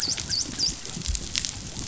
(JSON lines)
{"label": "biophony, dolphin", "recorder": "SoundTrap 500"}